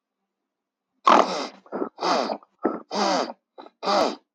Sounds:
Throat clearing